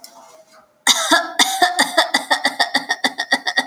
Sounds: Cough